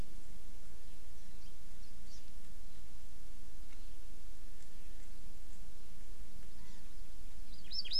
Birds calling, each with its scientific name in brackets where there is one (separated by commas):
Hawaii Amakihi (Chlorodrepanis virens)